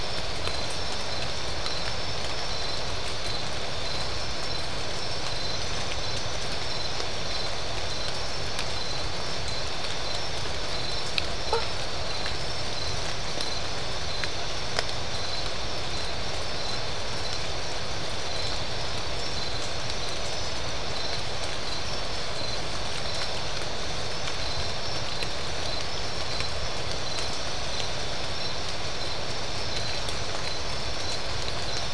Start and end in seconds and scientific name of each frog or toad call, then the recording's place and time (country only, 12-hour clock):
11.5	11.7	Boana faber
Brazil, 3:15am